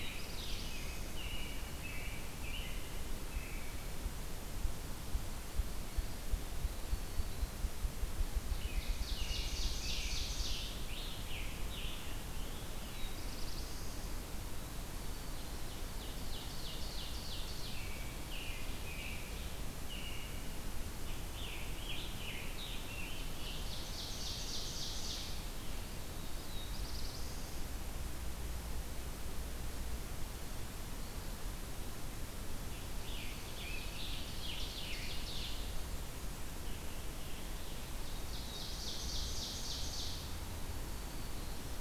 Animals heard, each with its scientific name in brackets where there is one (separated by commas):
Ruffed Grouse (Bonasa umbellus), Ovenbird (Seiurus aurocapilla), Scarlet Tanager (Piranga olivacea), American Robin (Turdus migratorius), Black-throated Blue Warbler (Setophaga caerulescens), Black-throated Green Warbler (Setophaga virens)